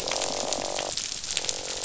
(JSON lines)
{"label": "biophony, croak", "recorder": "SoundTrap 500"}